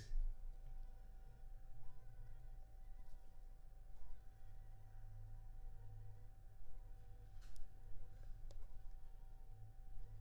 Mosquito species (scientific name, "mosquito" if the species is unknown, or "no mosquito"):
Anopheles funestus s.s.